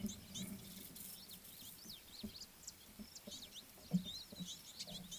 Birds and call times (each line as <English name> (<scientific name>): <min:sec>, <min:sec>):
Superb Starling (Lamprotornis superbus): 0:02.2